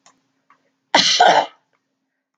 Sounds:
Cough